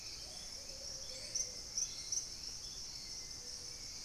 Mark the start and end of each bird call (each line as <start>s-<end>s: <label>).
0.0s-2.5s: Gray Antwren (Myrmotherula menetriesii)
0.0s-4.0s: Hauxwell's Thrush (Turdus hauxwelli)
0.0s-4.0s: Plumbeous Pigeon (Patagioenas plumbea)
0.0s-4.0s: Ruddy Pigeon (Patagioenas subvinacea)
0.0s-4.0s: Spot-winged Antshrike (Pygiptila stellaris)